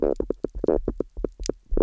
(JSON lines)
{"label": "biophony, knock croak", "recorder": "SoundTrap 300"}